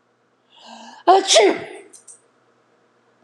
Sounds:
Sneeze